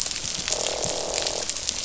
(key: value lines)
label: biophony, croak
recorder: SoundTrap 500